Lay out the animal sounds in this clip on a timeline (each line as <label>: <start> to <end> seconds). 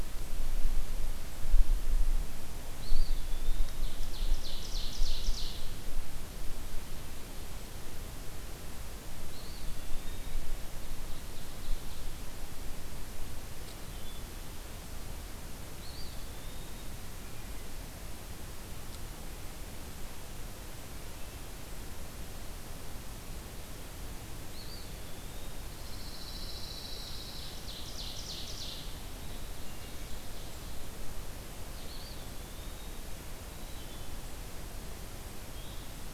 Eastern Wood-Pewee (Contopus virens): 2.7 to 4.4 seconds
Ovenbird (Seiurus aurocapilla): 3.5 to 5.7 seconds
Eastern Wood-Pewee (Contopus virens): 9.2 to 10.5 seconds
Ovenbird (Seiurus aurocapilla): 10.7 to 12.4 seconds
Wood Thrush (Hylocichla mustelina): 13.7 to 14.5 seconds
Eastern Wood-Pewee (Contopus virens): 15.7 to 17.1 seconds
Eastern Wood-Pewee (Contopus virens): 24.5 to 25.8 seconds
Pine Warbler (Setophaga pinus): 25.6 to 27.6 seconds
Ovenbird (Seiurus aurocapilla): 27.0 to 30.8 seconds
Wood Thrush (Hylocichla mustelina): 29.5 to 30.2 seconds
Eastern Wood-Pewee (Contopus virens): 31.7 to 33.2 seconds
Wood Thrush (Hylocichla mustelina): 33.5 to 34.2 seconds
Red-eyed Vireo (Vireo olivaceus): 35.4 to 36.1 seconds